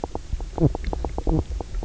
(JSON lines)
{"label": "biophony, knock croak", "recorder": "SoundTrap 300"}